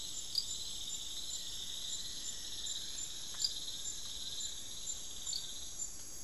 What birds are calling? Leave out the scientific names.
Buff-throated Woodcreeper, Fasciated Antshrike